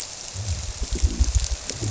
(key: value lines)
label: biophony
recorder: SoundTrap 300